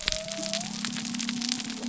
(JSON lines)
{"label": "biophony", "recorder": "SoundTrap 300"}